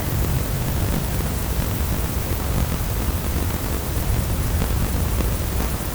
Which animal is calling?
Chorthippus apricarius, an orthopteran